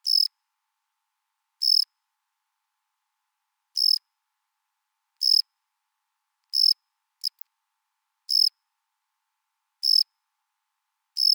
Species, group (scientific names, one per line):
Gryllus assimilis
Orthoptera